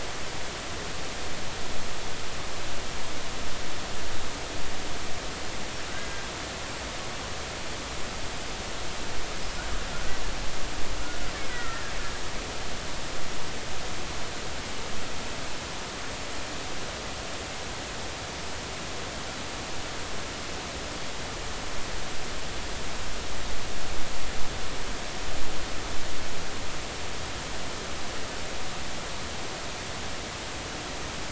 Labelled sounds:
5.9	6.3	killer whale, Bigg's (transient), 1.5 to 1.7 kHz
11.5	11.9	killer whale, Bigg's (transient), 1.3 to 2.0 kHz

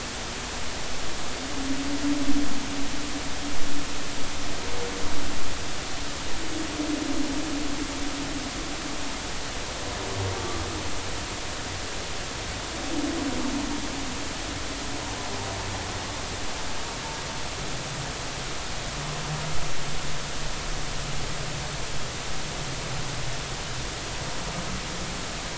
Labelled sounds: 10.3	10.6	humpback whale, 1.1 to 1.2 kHz

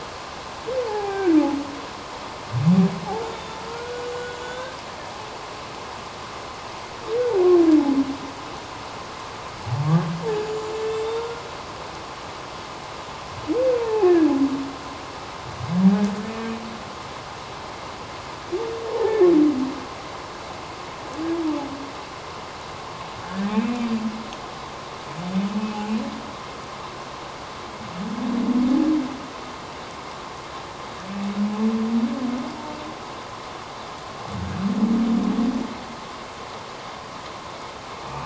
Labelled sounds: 0.9	1.3	humpback whale, 0.78 to 2.4 kHz
3.2	4.1	humpback whale, 1.2 to 6.9 kHz
4.4	4.8	humpback whale, 1.4 to 3.7 kHz
10.4	11.4	humpback whale, 1.3 to 7.0 kHz
13.8	14.3	humpback whale, 0.78 to 1.8 kHz
18.9	19.3	humpback whale, 0.78 to 1.8 kHz
23.3	23.9	humpback whale, 1.5 to 2.7 kHz

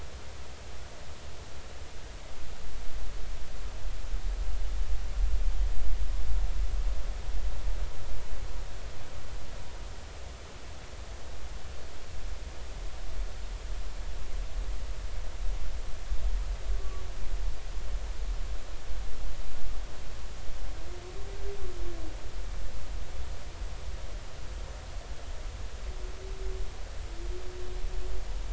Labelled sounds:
16.8	17.0	humpback whale, 1.1 to 1.2 kHz

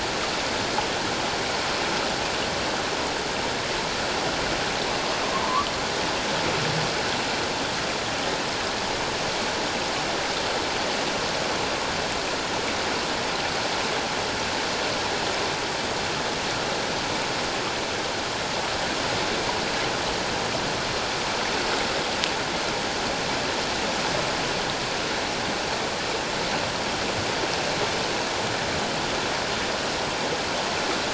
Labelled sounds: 5.4	5.7	humpback whale, 0.84 to 1.3 kHz

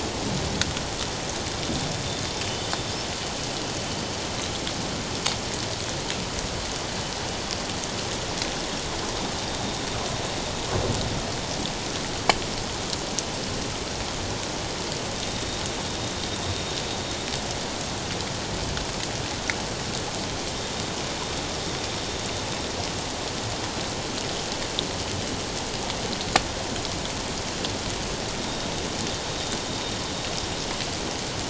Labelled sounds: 2.5	2.7	killer whale, northern resident, 2.9 to 3.1 kHz
15.3	15.6	killer whale, northern resident, 3.6 to 3.8 kHz
28.4	29.6	killer whale, northern resident, 3.6 to 3.9 kHz

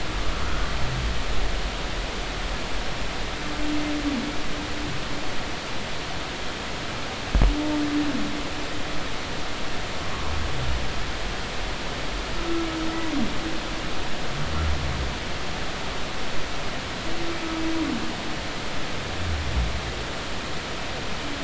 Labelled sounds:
0.5	0.7	humpback whale, 1.2 to 1.6 kHz

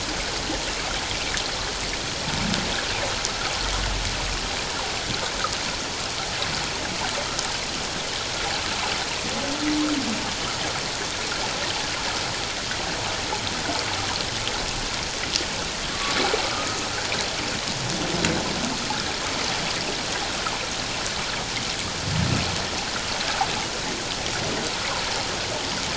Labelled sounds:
15.9	16.2	humpback whale, 1.1 to 1.2 kHz
16.4	16.8	humpback whale, 1.2 to 1.4 kHz

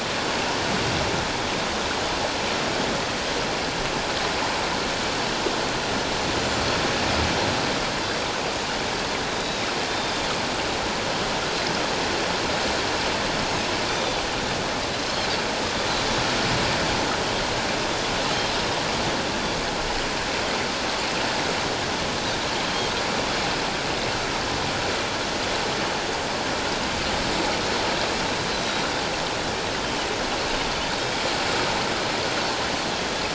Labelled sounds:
9.4	10.1	Pacific white-sided dolphin, 3.5 to 4.0 kHz
13.9	14.2	Pacific white-sided dolphin, 3.5 to 3.7 kHz
14.9	15.2	Pacific white-sided dolphin, 3.9 to 4.2 kHz
22.6	22.9	Pacific white-sided dolphin, 3.1 to 3.3 kHz

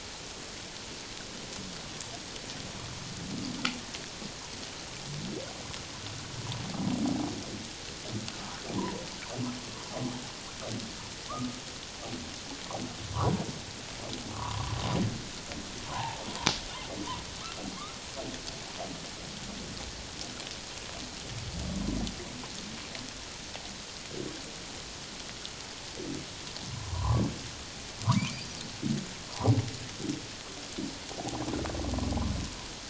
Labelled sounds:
8.8	9.0	humpback whale, 0.88 to 1.1 kHz
14.3	14.8	humpback whale, 0.91 to 1.4 kHz
15.9	16.2	humpback whale, 0.78 to 1.2 kHz
26.7	28.5	humpback whale, 0.78 to 2.6 kHz
29.3	29.5	humpback whale, 0.78 to 1.2 kHz
31.2	31.4	humpback whale, 0.78 to 0.84 kHz

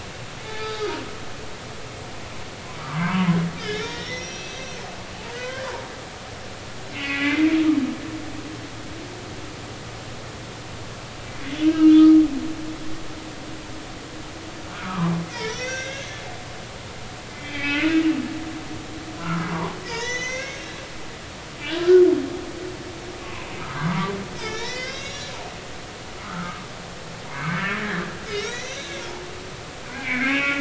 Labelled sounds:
0.5	0.9	humpback whale, 0.80 to 3.6 kHz
2.8	5.7	humpback whale, 0.90 to 6.0 kHz
6.9	7.5	humpback whale, 1.9 to 2.8 kHz
11.4	11.7	humpback whale, 3.3 to 3.5 kHz
14.7	16.2	humpback whale, 0.90 to 6.5 kHz
17.3	18.0	humpback whale, 1.4 to 2.7 kHz
19.2	19.5	humpback whale, 0.83 to 1.5 kHz
19.8	20.8	humpback whale, 0.86 to 7.0 kHz
23.2	25.3	humpback whale, 0.90 to 6.9 kHz
26.2	26.7	humpback whale, 1.1 to 1.5 kHz
27.3	28.0	humpback whale, 1.5 to 2.3 kHz
28.3	28.9	humpback whale, 1.7 to 7.0 kHz
29.9	30.5	humpback whale, 1.5 to 2.8 kHz

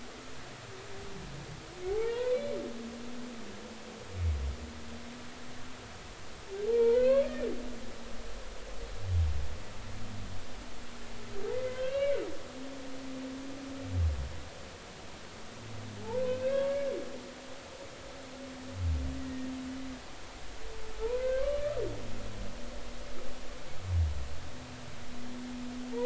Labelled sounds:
1.9	2.4	humpback whale, 0.80 to 2.0 kHz
6.6	7.5	humpback whale, 0.83 to 4.4 kHz
11.5	12.2	humpback whale, 1.5 to 3.3 kHz
16.2	16.8	humpback whale, 1.0 to 2.7 kHz
19.2	19.5	humpback whale, 1.8 to 2.0 kHz
20.9	21.6	humpback whale, 0.83 to 1.6 kHz

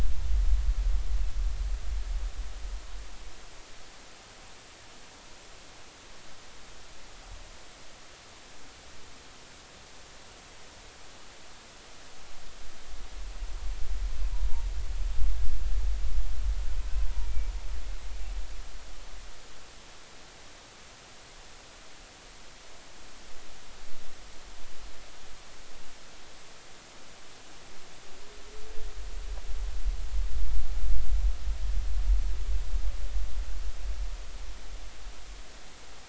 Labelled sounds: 17.2	17.5	humpback whale, 2.2 to 2.4 kHz

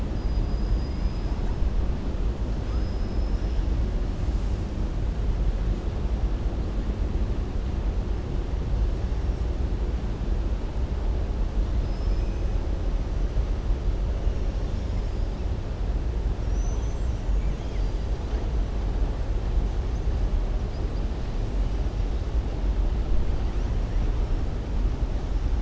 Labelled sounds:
0.1	1.4	killer whale, southern resident, 4.9 to 5.2 kHz
2.6	3.6	killer whale, southern resident, 4.5 to 5.7 kHz
11.8	12.5	killer whale, southern resident, 4.3 to 6.3 kHz

